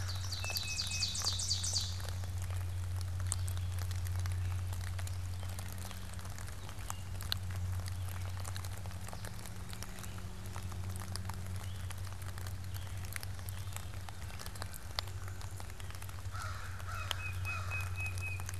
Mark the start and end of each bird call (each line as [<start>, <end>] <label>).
[0.00, 2.47] Ovenbird (Seiurus aurocapilla)
[0.27, 1.27] Tufted Titmouse (Baeolophus bicolor)
[7.57, 16.07] Gray Catbird (Dumetella carolinensis)
[16.17, 18.17] American Crow (Corvus brachyrhynchos)
[16.87, 18.57] Tufted Titmouse (Baeolophus bicolor)